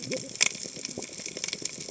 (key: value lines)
label: biophony, cascading saw
recorder: HydroMoth